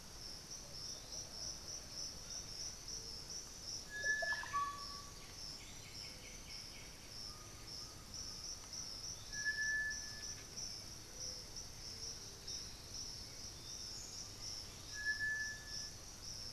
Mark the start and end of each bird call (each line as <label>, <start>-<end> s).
Piratic Flycatcher (Legatus leucophaius), 0.0-16.5 s
Plumbeous Pigeon (Patagioenas plumbea), 0.6-2.0 s
Russet-backed Oropendola (Psarocolius angustifrons), 3.6-5.5 s
White-winged Becard (Pachyramphus polychopterus), 5.1-7.1 s
Undulated Tinamou (Crypturellus undulatus), 7.1-9.4 s